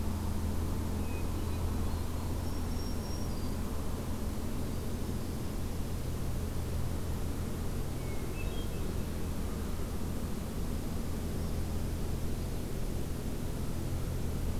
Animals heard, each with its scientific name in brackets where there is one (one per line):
Hermit Thrush (Catharus guttatus)
Black-throated Green Warbler (Setophaga virens)